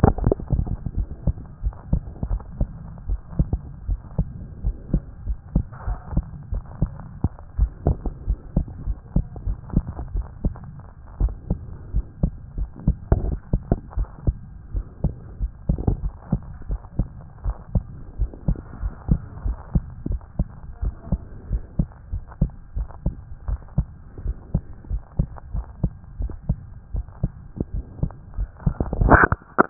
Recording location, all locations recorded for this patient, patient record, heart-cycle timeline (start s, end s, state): pulmonary valve (PV)
aortic valve (AV)+pulmonary valve (PV)+tricuspid valve (TV)+mitral valve (MV)
#Age: Child
#Sex: Male
#Height: 121.0 cm
#Weight: 20.7 kg
#Pregnancy status: False
#Murmur: Absent
#Murmur locations: nan
#Most audible location: nan
#Systolic murmur timing: nan
#Systolic murmur shape: nan
#Systolic murmur grading: nan
#Systolic murmur pitch: nan
#Systolic murmur quality: nan
#Diastolic murmur timing: nan
#Diastolic murmur shape: nan
#Diastolic murmur grading: nan
#Diastolic murmur pitch: nan
#Diastolic murmur quality: nan
#Outcome: Normal
#Campaign: 2014 screening campaign
0.00	11.04	unannotated
11.04	11.18	diastole
11.18	11.36	S1
11.36	11.48	systole
11.48	11.62	S2
11.62	11.92	diastole
11.92	12.06	S1
12.06	12.22	systole
12.22	12.34	S2
12.34	12.56	diastole
12.56	12.70	S1
12.70	12.86	systole
12.86	13.00	S2
13.00	13.24	diastole
13.24	13.40	S1
13.40	13.52	systole
13.52	13.66	S2
13.66	13.96	diastole
13.96	14.08	S1
14.08	14.24	systole
14.24	14.40	S2
14.40	14.72	diastole
14.72	14.84	S1
14.84	15.00	systole
15.00	15.14	S2
15.14	15.40	diastole
15.40	15.52	S1
15.52	15.68	systole
15.68	15.78	S2
15.78	16.00	diastole
16.00	16.14	S1
16.14	16.28	systole
16.28	16.42	S2
16.42	16.68	diastole
16.68	16.80	S1
16.80	16.98	systole
16.98	17.12	S2
17.12	17.44	diastole
17.44	17.56	S1
17.56	17.74	systole
17.74	17.84	S2
17.84	18.16	diastole
18.16	18.30	S1
18.30	18.44	systole
18.44	18.58	S2
18.58	18.82	diastole
18.82	18.94	S1
18.94	19.10	systole
19.10	19.20	S2
19.20	19.44	diastole
19.44	19.58	S1
19.58	19.74	systole
19.74	19.88	S2
19.88	20.10	diastole
20.10	20.22	S1
20.22	20.38	systole
20.38	20.48	S2
20.48	20.82	diastole
20.82	20.94	S1
20.94	21.08	systole
21.08	21.22	S2
21.22	21.48	diastole
21.48	21.62	S1
21.62	21.78	systole
21.78	21.88	S2
21.88	22.12	diastole
22.12	22.24	S1
22.24	22.40	systole
22.40	22.52	S2
22.52	22.76	diastole
22.76	22.88	S1
22.88	23.06	systole
23.06	23.18	S2
23.18	23.46	diastole
23.46	23.60	S1
23.60	23.76	systole
23.76	23.92	S2
23.92	24.24	diastole
24.24	24.38	S1
24.38	24.50	systole
24.50	24.62	S2
24.62	24.90	diastole
24.90	25.02	S1
25.02	25.18	systole
25.18	25.32	S2
25.32	25.54	diastole
25.54	25.66	S1
25.66	25.82	systole
25.82	25.94	S2
25.94	26.18	diastole
26.18	26.34	S1
26.34	26.48	systole
26.48	26.60	S2
26.60	26.92	diastole
26.92	27.06	S1
27.06	27.22	systole
27.22	27.36	S2
27.36	27.70	diastole
27.70	27.84	S1
27.84	27.98	systole
27.98	28.10	S2
28.10	28.36	diastole
28.36	29.70	unannotated